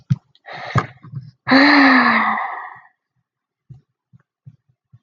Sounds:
Sigh